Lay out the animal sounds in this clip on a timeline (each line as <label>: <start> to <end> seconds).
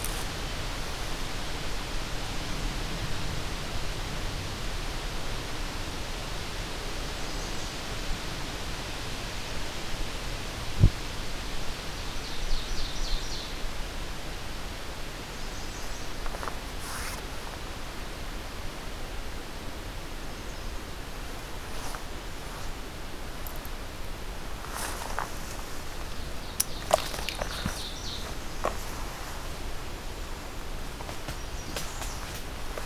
American Redstart (Setophaga ruticilla): 7.1 to 7.9 seconds
Ovenbird (Seiurus aurocapilla): 11.4 to 13.8 seconds
American Redstart (Setophaga ruticilla): 15.2 to 16.4 seconds
American Redstart (Setophaga ruticilla): 19.9 to 20.9 seconds
Ovenbird (Seiurus aurocapilla): 26.0 to 28.5 seconds
American Redstart (Setophaga ruticilla): 31.1 to 32.4 seconds